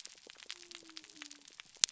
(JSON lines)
{"label": "biophony", "recorder": "SoundTrap 300"}